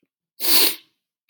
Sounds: Sniff